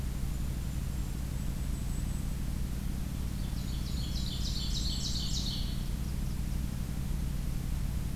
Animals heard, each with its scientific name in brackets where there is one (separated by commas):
Golden-crowned Kinglet (Regulus satrapa), Ovenbird (Seiurus aurocapilla), Blackburnian Warbler (Setophaga fusca)